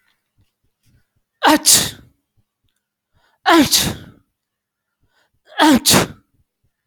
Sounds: Sneeze